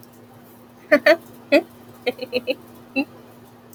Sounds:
Laughter